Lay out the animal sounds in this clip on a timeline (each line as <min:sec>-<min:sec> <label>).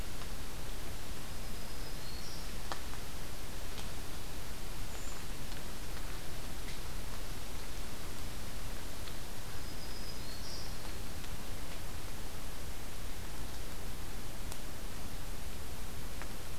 0:01.2-0:02.5 Black-throated Green Warbler (Setophaga virens)
0:04.8-0:05.2 Brown Creeper (Certhia americana)
0:09.3-0:10.8 Black-throated Green Warbler (Setophaga virens)